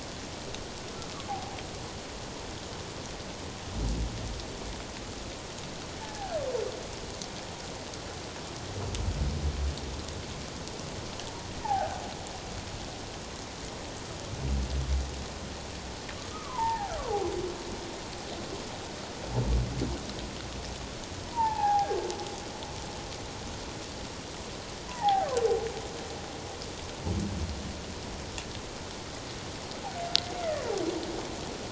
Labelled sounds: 1.3	1.6	humpback whale, 0.78 to 0.88 kHz
5.9	6.3	humpback whale, 0.78 to 1.8 kHz
11.6	12.0	humpback whale, 0.78 to 1.7 kHz
16.3	16.9	humpback whale, 0.78 to 1.9 kHz
21.2	22.0	humpback whale, 0.78 to 1.8 kHz
24.9	25.3	humpback whale, 0.78 to 1.0 kHz
30.3	30.6	humpback whale, 1.7 to 2.2 kHz

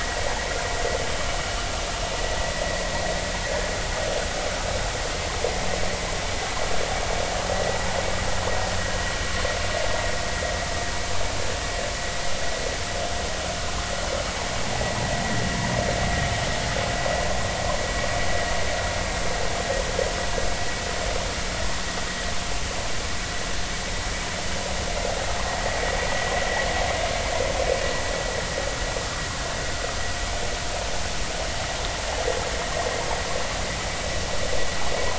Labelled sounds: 3.5	3.7	vessel noise, 1.6 to 1.8 kHz

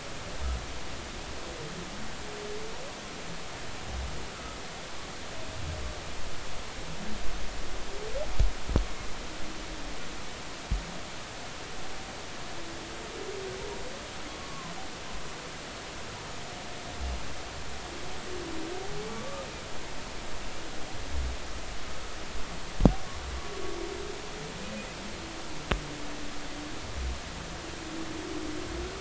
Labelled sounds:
4.3	4.6	humpback whale, 1.2 to 1.4 kHz
14.4	14.7	humpback whale, 0.96 to 1.2 kHz
19.1	19.5	humpback whale, 1.1 to 1.3 kHz

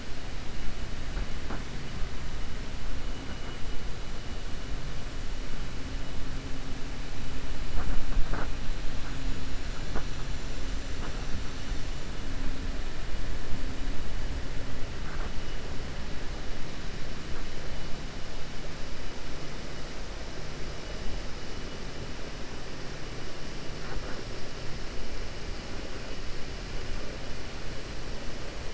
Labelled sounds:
9.1	10.2	killer whale, 6.0 to 7.7 kHz

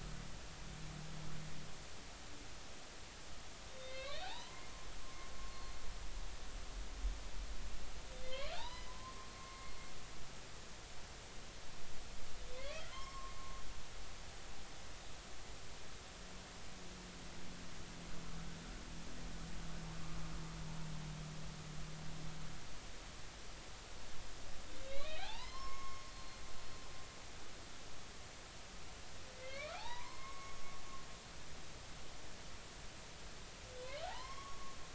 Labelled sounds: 3.7	5.3	humpback whale, 0.80 to 4.5 kHz
8.2	9.7	humpback whale, 0.80 to 5.1 kHz
12.6	13.6	humpback whale, 0.96 to 2.6 kHz
24.8	26.4	humpback whale, 0.80 to 5.5 kHz
29.3	30.6	humpback whale, 0.80 to 6.6 kHz
34.0	34.8	humpback whale, 0.80 to 5.6 kHz

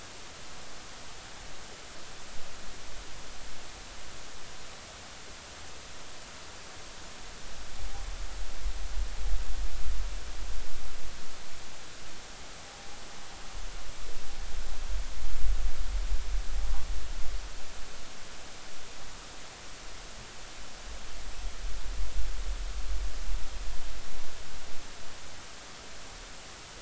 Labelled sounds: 13.7	14.0	noise likely from the mooring, 0.80 to 0.86 kHz

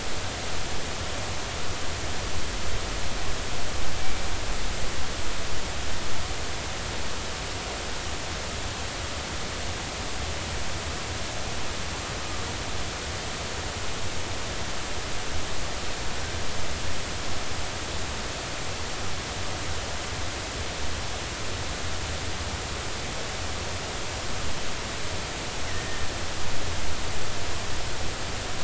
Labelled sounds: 25.7	26.1	killer whale, northern resident, 1.8 to 2.1 kHz

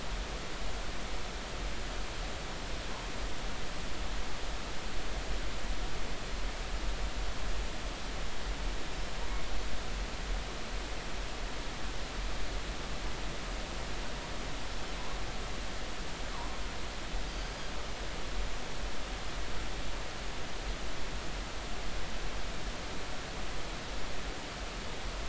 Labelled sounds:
17.3	17.6	killer whale, northern resident, G clan, 4.5 to 4.8 kHz

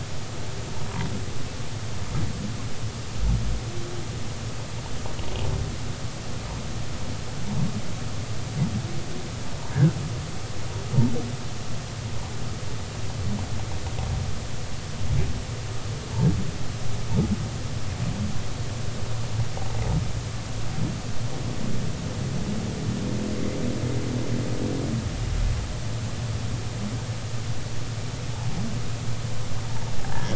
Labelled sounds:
30.1	30.3	humpback whale, 1.5 to 1.8 kHz

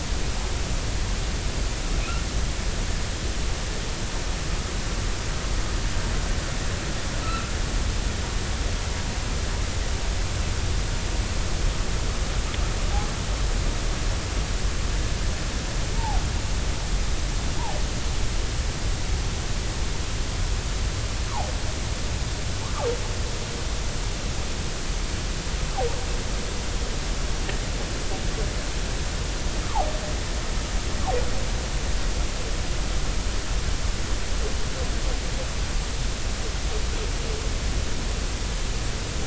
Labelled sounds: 2.0	2.2	humpback whale, 2.2 to 2.8 kHz
7.2	7.5	humpback whale, 1.2 to 1.4 kHz
15.9	16.2	humpback whale, 0.80 to 0.96 kHz
29.6	29.9	humpback whale, 0.80 to 1.3 kHz

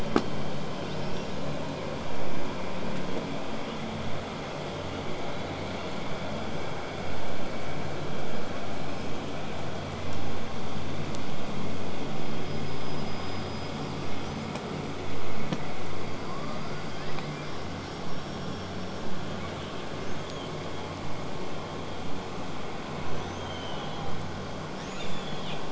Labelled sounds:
0.8	2.0	killer whale, southern resident, 2.1 to 5.8 kHz
13.8	14.9	killer whale, southern resident, 5.4 to 8.0 kHz
16.1	17.6	killer whale, southern resident, L pod, call S19, 0.83 to 8.0 kHz
17.4	19.1	killer whale, southern resident, whistle, 5.3 to 8.0 kHz
19.4	20.9	killer whale, southern resident, 1.9 to 8.0 kHz
23.1	24.2	killer whale, southern resident, L pod, call S36, 0.66 to 8.0 kHz
24.7	25.7	killer whale, southern resident, 0.82 to 8.0 kHz

